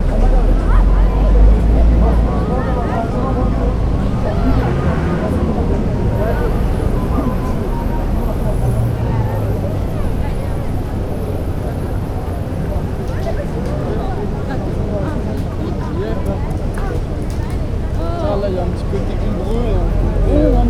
Is there a dog barking?
no